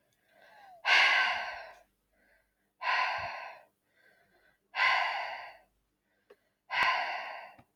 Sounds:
Sigh